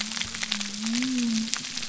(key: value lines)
label: biophony
recorder: SoundTrap 300